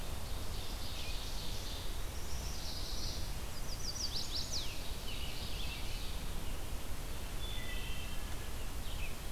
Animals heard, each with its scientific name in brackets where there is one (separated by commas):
American Robin (Turdus migratorius), Chestnut-sided Warbler (Setophaga pensylvanica), Ovenbird (Seiurus aurocapilla), Wood Thrush (Hylocichla mustelina), Red-eyed Vireo (Vireo olivaceus)